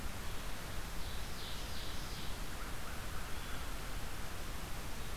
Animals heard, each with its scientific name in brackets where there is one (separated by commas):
American Crow (Corvus brachyrhynchos), Red-eyed Vireo (Vireo olivaceus), Ovenbird (Seiurus aurocapilla)